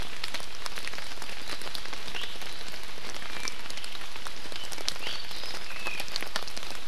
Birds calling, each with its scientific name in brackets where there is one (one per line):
Apapane (Himatione sanguinea)
Iiwi (Drepanis coccinea)